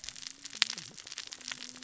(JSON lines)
{"label": "biophony, cascading saw", "recorder": "SoundTrap 600 or HydroMoth"}